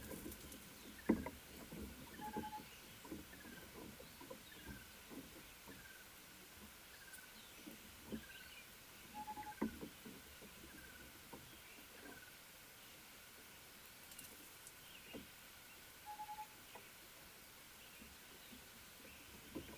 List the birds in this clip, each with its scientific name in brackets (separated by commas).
Tropical Boubou (Laniarius major)